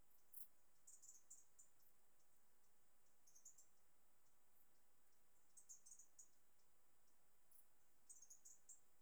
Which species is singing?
Pholidoptera griseoaptera